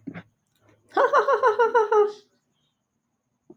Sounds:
Laughter